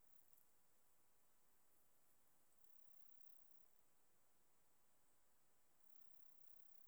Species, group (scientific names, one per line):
Platycleis iberica
Orthoptera